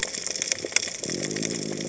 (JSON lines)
{"label": "biophony", "recorder": "HydroMoth"}